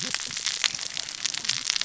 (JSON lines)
{"label": "biophony, cascading saw", "recorder": "SoundTrap 600 or HydroMoth"}